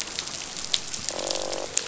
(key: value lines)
label: biophony, croak
recorder: SoundTrap 500